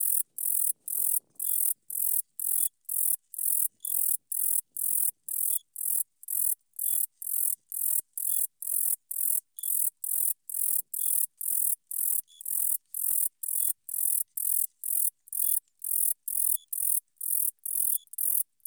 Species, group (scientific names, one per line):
Eugaster guyoni
Orthoptera